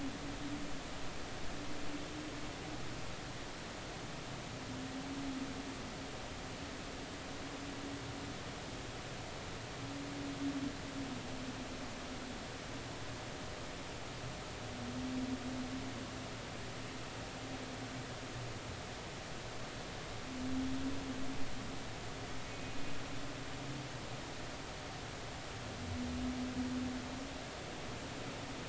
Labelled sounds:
22.5	22.8	humpback whale, 2.4 to 2.5 kHz

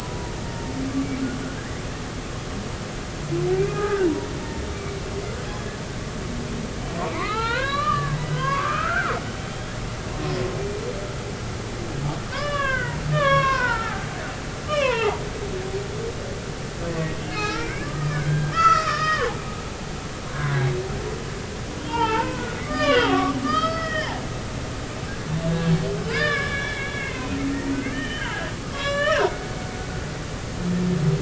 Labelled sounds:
1.1	1.4	humpback whale, 1.3 to 1.6 kHz
3.6	4.3	humpback whale, 0.90 to 2.5 kHz
7.0	9.7	humpback whale, 0.83 to 4.3 kHz
12.3	14.0	humpback whale, 0.80 to 3.9 kHz
14.7	15.2	humpback whale, 0.80 to 5.5 kHz
16.9	19.4	humpback whale, 0.80 to 6.0 kHz
20.3	20.7	humpback whale, 0.93 to 1.7 kHz
21.8	24.1	humpback whale, 0.83 to 5.3 kHz
26.1	29.5	humpback whale, 0.99 to 7.5 kHz

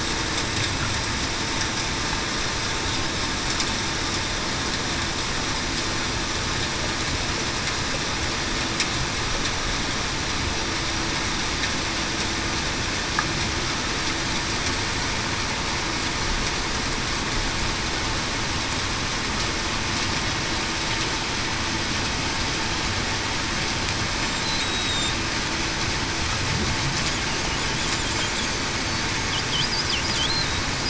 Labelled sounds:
24.6	25.1	killer whale, Bigg's (transient), 3.6 to 3.9 kHz

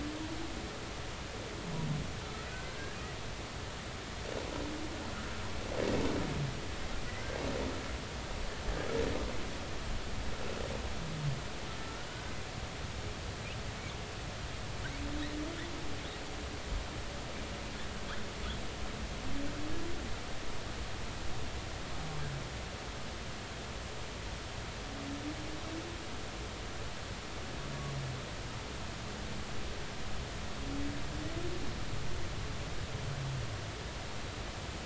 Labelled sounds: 2.2	3.0	humpback whale, 1.2 to 1.7 kHz
11.8	12.1	humpback whale, 1.3 to 1.5 kHz

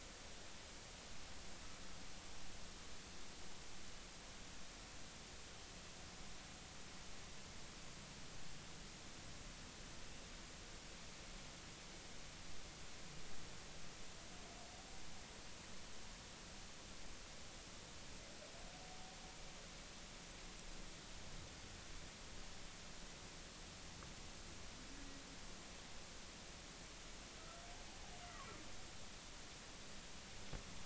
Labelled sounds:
27.9	28.1	humpback whale, 0.80 to 0.90 kHz

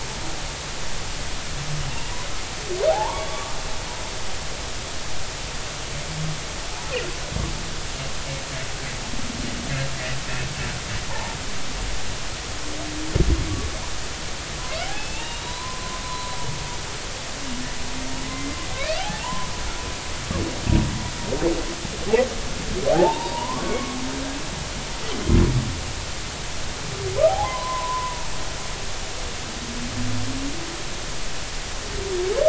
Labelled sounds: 2.9	3.6	humpback whale, 0.80 to 3.5 kHz
11.1	11.4	humpback whale, 0.80 to 1.1 kHz
14.9	16.3	humpback whale, 0.83 to 4.0 kHz
18.3	19.5	humpback whale, 0.80 to 2.6 kHz
22.9	24.0	humpback whale, 0.80 to 2.3 kHz
27.3	28.3	humpback whale, 0.80 to 1.1 kHz

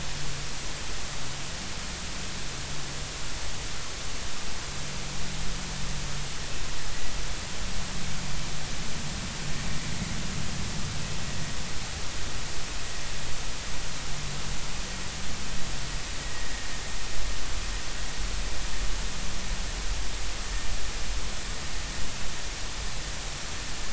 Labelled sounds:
16.2	16.5	vessel noise, 1.9 to 2.0 kHz

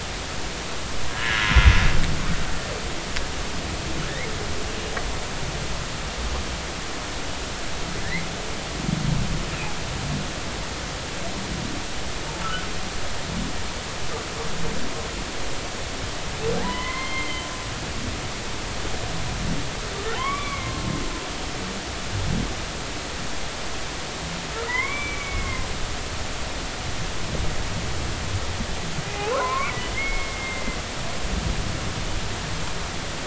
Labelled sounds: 1.1	1.5	humpback whale, 1.6 to 2.1 kHz
8.0	8.3	humpback whale, 1.6 to 2.3 kHz
16.6	17.5	humpback whale, 0.80 to 4.3 kHz
20.1	20.8	humpback whale, 0.80 to 3.6 kHz
24.7	25.6	humpback whale, 0.90 to 2.4 kHz
29.1	30.8	humpback whale, 0.80 to 2.8 kHz

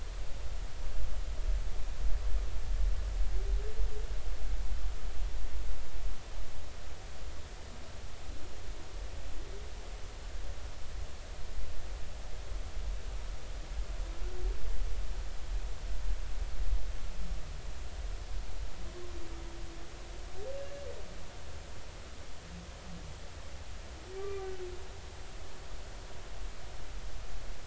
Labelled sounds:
24.2	24.5	humpback whale, 1.1 to 1.2 kHz

